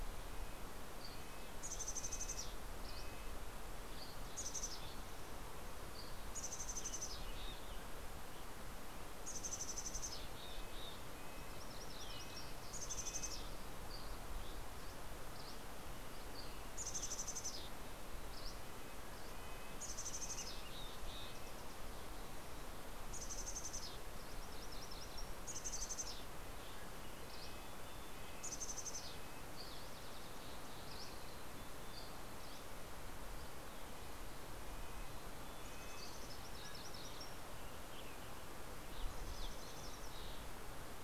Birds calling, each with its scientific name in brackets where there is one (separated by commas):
Green-tailed Towhee (Pipilo chlorurus), MacGillivray's Warbler (Geothlypis tolmiei), Western Tanager (Piranga ludoviciana), Mountain Chickadee (Poecile gambeli), Dusky Flycatcher (Empidonax oberholseri), Red-breasted Nuthatch (Sitta canadensis), Mountain Quail (Oreortyx pictus)